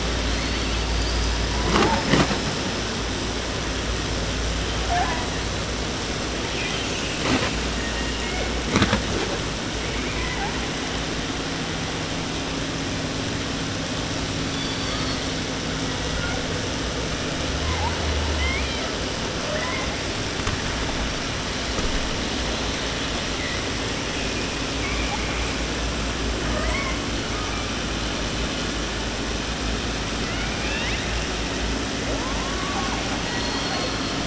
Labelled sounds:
0.0	2.7	killer whale, 0.37 to 5.9 kHz
4.9	5.4	killer whale, 0.46 to 4.3 kHz
6.5	7.2	killer whale, 1.9 to 7.0 kHz
7.7	8.7	killer whale, southern resident, J pod, call S01, 0.30 to 3.7 kHz
9.8	10.7	killer whale, 0.30 to 3.0 kHz
14.4	15.4	killer whale, southern resident, 0.30 to 6.3 kHz
15.6	16.8	killer whale, 1.0 to 8.0 kHz
17.5	17.9	killer whale, 0.65 to 1.8 kHz
18.3	18.9	killer whale, southern resident, J pod, call S01, 0.30 to 6.4 kHz
19.3	20.0	killer whale, 0.30 to 3.0 kHz
23.3	23.6	killer whale, 1.5 to 2.6 kHz
24.8	25.6	killer whale, 0.52 to 7.7 kHz
26.3	27.1	killer whale, 0.46 to 8.0 kHz
30.1	31.2	killer whale, southern resident, 0.30 to 6.5 kHz
31.9	33.0	killer whale, southern resident, J pod, call S44, 0.30 to 3.0 kHz
33.2	34.2	killer whale, southern resident, J pod, call S01, 0.30 to 4.9 kHz

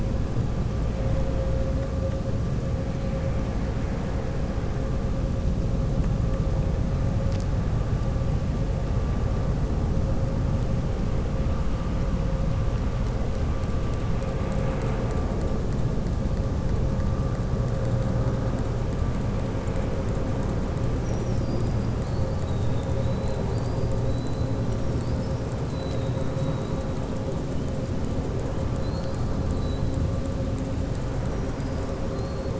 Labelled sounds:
20.9	21.9	killer whale, southern resident, 4.7 to 6.1 kHz
24.6	25.4	killer whale, southern resident, 4.4 to 5.8 kHz

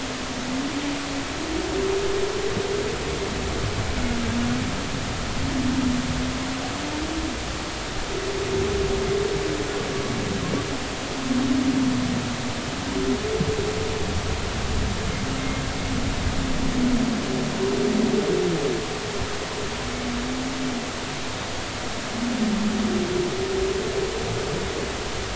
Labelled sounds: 15.4	15.6	humpback whale, 2.1 to 2.2 kHz

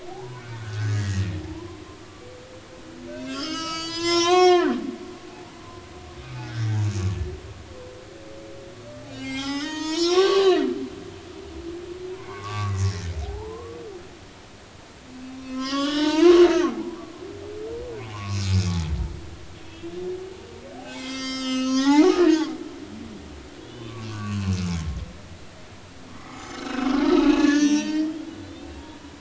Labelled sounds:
0.3	2.3	humpback whale, 0.80 to 2.5 kHz
3.3	4.8	humpback whale, 0.80 to 8.0 kHz
5.3	5.6	humpback whale, 0.80 to 0.96 kHz
6.2	6.9	humpback whale, 0.80 to 2.6 kHz
9.1	10.7	humpback whale, 0.80 to 7.9 kHz
12.2	13.8	humpback whale, 0.80 to 2.3 kHz
15.3	17.0	humpback whale, 0.80 to 6.6 kHz
18.1	18.4	humpback whale, 0.93 to 1.2 kHz
19.7	19.9	humpback whale, 2.6 to 2.8 kHz
20.8	24.5	humpback whale, 0.80 to 8.0 kHz
26.1	28.3	humpback whale, 0.83 to 6.2 kHz

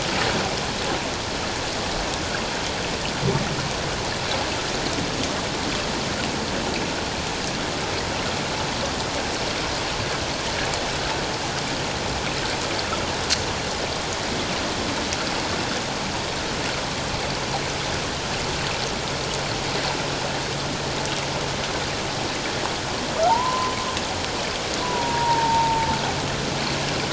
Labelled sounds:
23.2	23.7	humpback whale, 0.78 to 1.1 kHz
24.8	25.9	humpback whale, 0.84 to 1.1 kHz

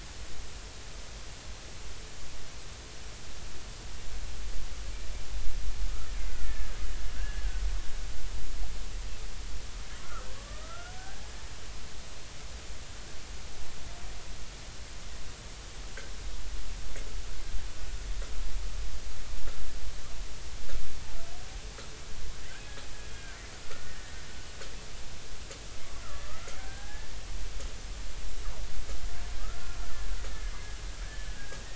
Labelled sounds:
6.2	7.4	killer whale, Bigg's (transient), 1.3 to 2.3 kHz
10.0	11.4	killer whale, Bigg's (transient), 1.1 to 1.7 kHz
23.1	24.2	killer whale, Bigg's (transient), 1.2 to 2.0 kHz
26.0	27.2	killer whale, Bigg's (transient), 0.80 to 1.9 kHz
29.4	30.2	killer whale, Bigg's (transient), 1.2 to 1.9 kHz
31.0	31.4	killer whale, Bigg's (transient), 1.5 to 1.8 kHz

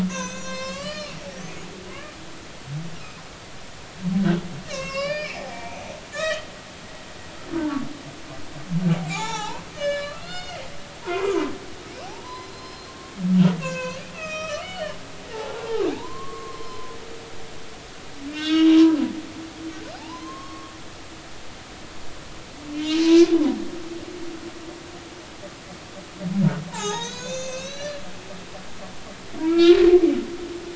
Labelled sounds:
0.1	1.2	humpback whale, 0.90 to 8.0 kHz
1.9	2.2	humpback whale, 0.96 to 1.3 kHz
4.7	5.8	humpback whale, 0.86 to 7.7 kHz
6.1	6.5	humpback whale, 1.1 to 5.8 kHz
7.5	7.8	humpback whale, 1.3 to 1.6 kHz
9.1	11.4	humpback whale, 0.80 to 7.6 kHz
12.0	13.0	humpback whale, 0.80 to 5.2 kHz
13.6	15.0	humpback whale, 0.96 to 6.8 kHz
15.3	16.9	humpback whale, 0.80 to 1.2 kHz
18.3	19.0	humpback whale, 0.93 to 5.5 kHz
19.9	20.7	humpback whale, 0.80 to 1.2 kHz
22.7	23.3	humpback whale, 0.96 to 3.2 kHz
26.7	28.0	humpback whale, 0.80 to 7.6 kHz
29.4	30.7	humpback whale, 1.3 to 4.0 kHz

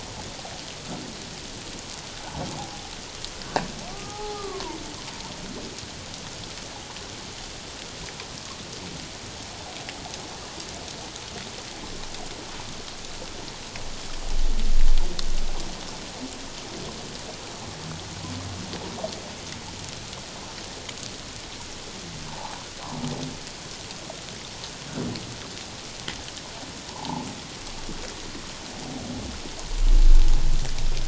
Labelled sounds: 3.9	4.8	humpback whale, 0.78 to 1.3 kHz
22.3	22.6	humpback whale, 0.78 to 1.2 kHz
26.9	27.3	humpback whale, 0.78 to 1.1 kHz

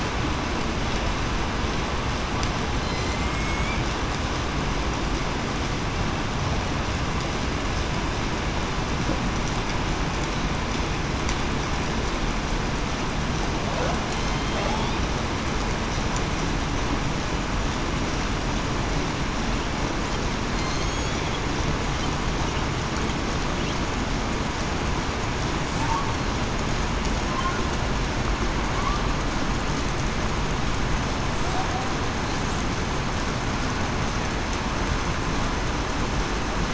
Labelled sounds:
2.8	3.6	killer whale, southern resident, 4.1 to 6.6 kHz
14.3	14.7	killer whale, southern resident, 3.1 to 3.2 kHz
20.5	21.0	killer whale, southern resident, 4.1 to 4.4 kHz

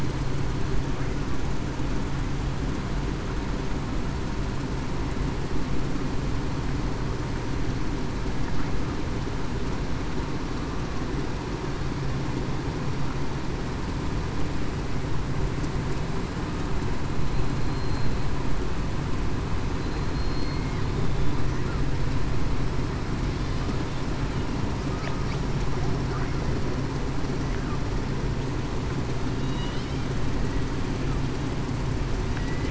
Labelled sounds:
17.7	18.1	killer whale, southern resident, 4.1 to 4.2 kHz
20.1	20.6	killer whale, southern resident, 4.2 to 4.3 kHz
32.4	32.7	killer whale, southern resident, 1.9 to 2.0 kHz

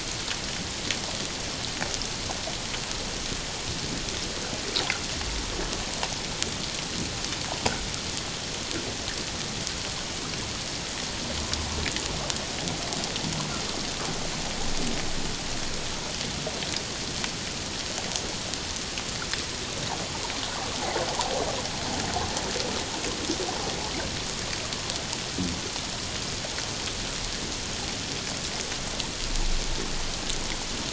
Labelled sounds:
20.7	21.0	water noise, 0.78 to 0.91 kHz

